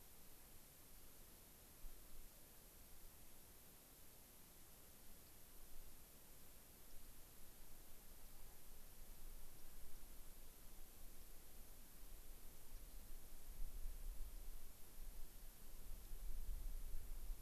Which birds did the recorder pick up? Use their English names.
unidentified bird